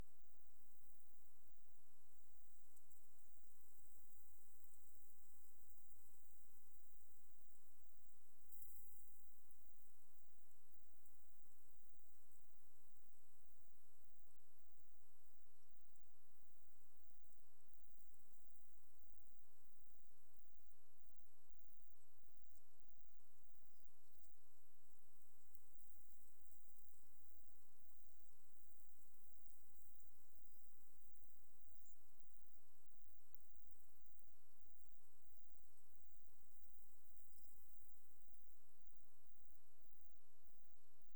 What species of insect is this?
Ctenodecticus ramburi